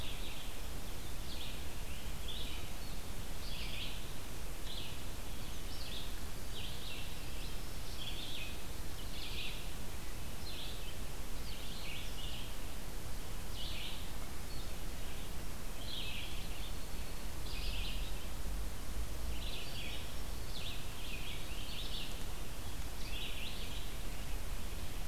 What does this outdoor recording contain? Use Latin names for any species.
Vireo olivaceus, Setophaga virens